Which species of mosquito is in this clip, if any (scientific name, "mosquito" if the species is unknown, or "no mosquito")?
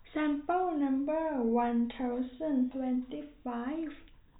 no mosquito